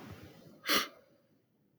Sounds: Sniff